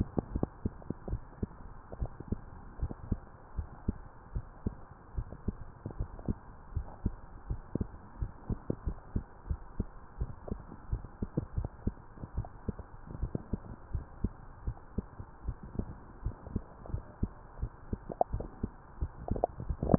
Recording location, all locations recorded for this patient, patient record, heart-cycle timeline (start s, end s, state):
mitral valve (MV)
aortic valve (AV)+pulmonary valve (PV)+tricuspid valve (TV)+mitral valve (MV)
#Age: Child
#Sex: Female
#Height: 140.0 cm
#Weight: 33.3 kg
#Pregnancy status: False
#Murmur: Absent
#Murmur locations: nan
#Most audible location: nan
#Systolic murmur timing: nan
#Systolic murmur shape: nan
#Systolic murmur grading: nan
#Systolic murmur pitch: nan
#Systolic murmur quality: nan
#Diastolic murmur timing: nan
#Diastolic murmur shape: nan
#Diastolic murmur grading: nan
#Diastolic murmur pitch: nan
#Diastolic murmur quality: nan
#Outcome: Abnormal
#Campaign: 2015 screening campaign
0.00	1.08	unannotated
1.08	1.22	S1
1.22	1.42	systole
1.42	1.56	S2
1.56	1.94	diastole
1.94	2.10	S1
2.10	2.28	systole
2.28	2.42	S2
2.42	2.76	diastole
2.76	2.92	S1
2.92	3.08	systole
3.08	3.22	S2
3.22	3.56	diastole
3.56	3.68	S1
3.68	3.84	systole
3.84	4.00	S2
4.00	4.32	diastole
4.32	4.44	S1
4.44	4.62	systole
4.62	4.76	S2
4.76	5.14	diastole
5.14	5.28	S1
5.28	5.46	systole
5.46	5.60	S2
5.60	5.94	diastole
5.94	6.08	S1
6.08	6.26	systole
6.26	6.38	S2
6.38	6.74	diastole
6.74	6.88	S1
6.88	7.04	systole
7.04	7.18	S2
7.18	7.48	diastole
7.48	7.62	S1
7.62	7.76	systole
7.76	7.88	S2
7.88	8.18	diastole
8.18	8.32	S1
8.32	8.48	systole
8.48	8.60	S2
8.60	8.84	diastole
8.84	8.98	S1
8.98	9.12	systole
9.12	9.24	S2
9.24	9.48	diastole
9.48	9.62	S1
9.62	9.78	systole
9.78	9.90	S2
9.90	10.20	diastole
10.20	10.34	S1
10.34	10.50	systole
10.50	10.64	S2
10.64	10.90	diastole
10.90	11.04	S1
11.04	11.18	systole
11.18	11.30	S2
11.30	11.56	diastole
11.56	11.72	S1
11.72	11.85	systole
11.85	12.00	S2
12.00	12.36	diastole
12.36	12.48	S1
12.48	12.64	systole
12.64	12.78	S2
12.78	13.14	diastole
13.14	13.32	S1
13.32	13.48	systole
13.48	13.62	S2
13.62	13.92	diastole
13.92	14.06	S1
14.06	14.20	systole
14.20	14.34	S2
14.34	14.64	diastole
14.64	14.76	S1
14.76	14.94	systole
14.94	15.08	S2
15.08	15.44	diastole
15.44	15.58	S1
15.58	15.78	systole
15.78	15.92	S2
15.92	16.22	diastole
16.22	16.36	S1
16.36	16.52	systole
16.52	16.64	S2
16.64	16.90	diastole
16.90	17.04	S1
17.04	17.18	systole
17.18	17.30	S2
17.30	17.58	diastole
17.58	17.72	S1
17.72	17.88	systole
17.88	18.00	S2
18.00	19.98	unannotated